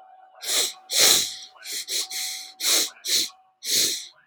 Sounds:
Sniff